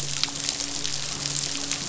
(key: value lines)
label: biophony, midshipman
recorder: SoundTrap 500